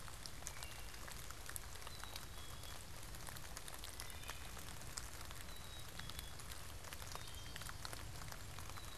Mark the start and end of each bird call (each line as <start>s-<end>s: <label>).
0.2s-1.4s: Wood Thrush (Hylocichla mustelina)
1.7s-9.0s: Black-capped Chickadee (Poecile atricapillus)
3.7s-4.6s: Wood Thrush (Hylocichla mustelina)
6.7s-9.0s: Nashville Warbler (Leiothlypis ruficapilla)
6.8s-7.9s: Wood Thrush (Hylocichla mustelina)